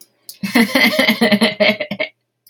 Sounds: Laughter